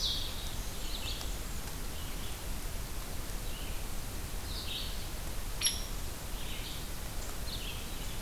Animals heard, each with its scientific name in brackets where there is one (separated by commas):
Hairy Woodpecker (Dryobates villosus), Blackburnian Warbler (Setophaga fusca), Red-eyed Vireo (Vireo olivaceus)